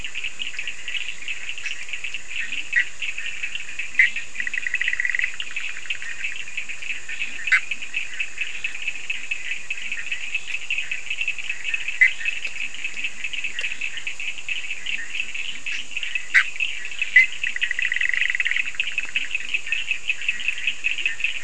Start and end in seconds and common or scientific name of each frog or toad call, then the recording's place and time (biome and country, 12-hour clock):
2.2	4.9	Leptodactylus latrans
2.4	3.0	Bischoff's tree frog
3.7	6.6	Bischoff's tree frog
6.6	8.6	Leptodactylus latrans
7.3	7.8	Bischoff's tree frog
11.8	12.5	Bischoff's tree frog
12.1	21.4	Leptodactylus latrans
16.2	19.6	Bischoff's tree frog
Atlantic Forest, Brazil, 3:30am